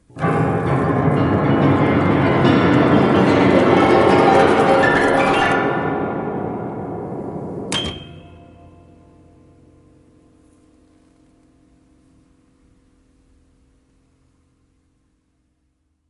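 0.1s Horrible low-pitched piano sounds fading out. 7.7s
7.7s High-pitched piano sound slowly fading out. 16.1s

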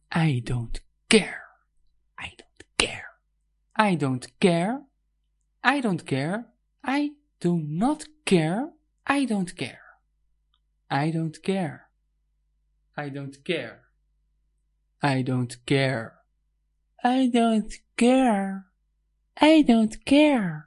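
0.0s Someone speaks the phrase "I don't care" repeatedly in different tones. 20.7s

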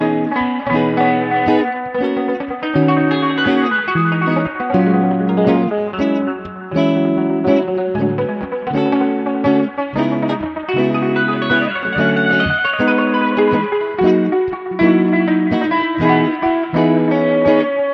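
0.0s A guitar plays a melodic pattern. 17.9s
0.0s An electric guitar is being played off beat. 17.9s

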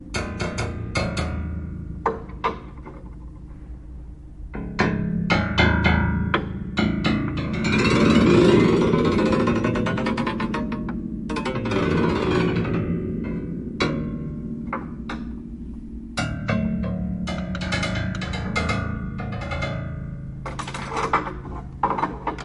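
0.0s All piano keys are gradually pressed in order. 22.4s
0.0s Piano keys are being played. 22.4s

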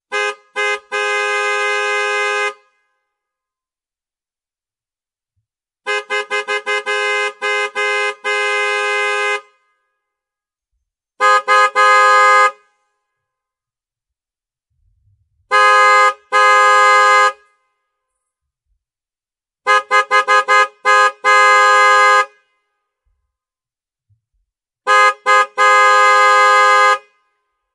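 0.0s A car horn honks repeatedly in an irregular pattern. 2.7s
5.8s A car horn honks repeatedly in an irregular manner. 9.5s
11.1s A car horn honks three times with a crisp sound. 12.6s
15.5s A car horn honks twice with a crisp sound. 17.4s
19.5s A car horn honks repeatedly in an irregular pattern. 22.4s
24.8s A car horn honks three times with a crisp sound. 27.1s

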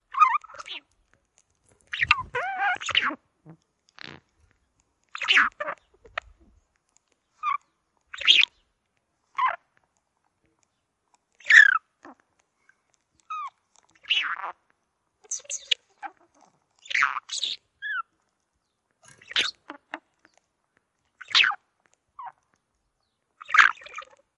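0.0s A radio is playing while someone adjusts the frequency. 24.4s

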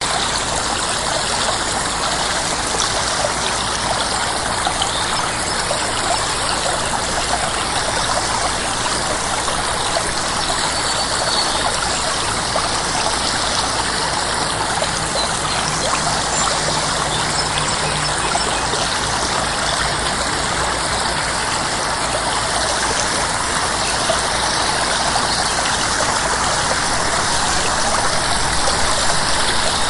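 0.0s A strong stream of water flows rapidly while birds sing in the background. 29.9s

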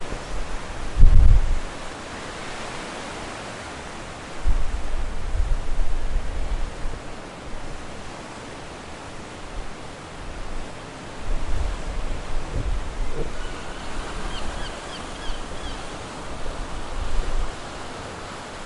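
0.0s Waves roaring in the sea. 13.5s
13.5s A seagull calls repeatedly while flying by. 16.6s
13.5s Waves roaring in the sea, repeating. 16.6s
16.7s Waves roaring in the sea. 18.7s

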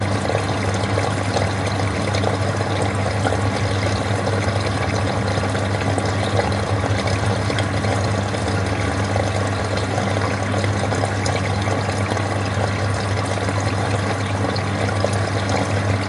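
0.0s A machine is filling with water. 16.1s

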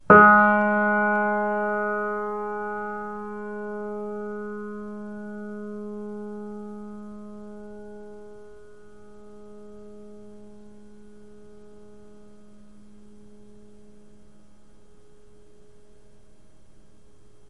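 0.0s A piano note fades away slowly. 14.0s

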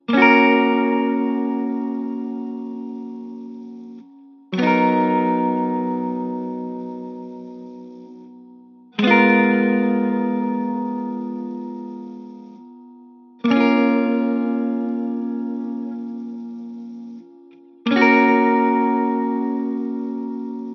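0.0s A guitar plays a sequence of slow, jazzy, and elongated chords. 20.7s

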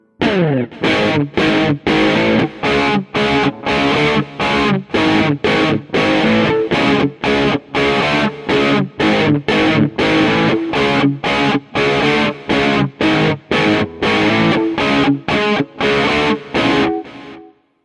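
0.2s An electric guitar plays a rhythmic, distorted tune that fades away at the end. 17.5s

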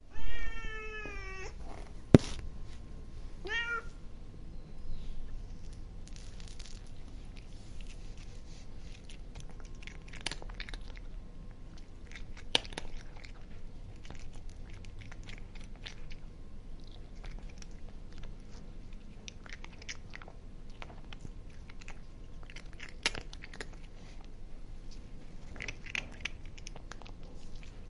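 0.0s A cat meows. 1.9s
2.0s A muffled thumping. 2.4s
3.4s A cat meows. 3.9s
4.6s A bird chirps in the distance. 5.7s
9.9s A cat is eating kibble by licking. 27.9s

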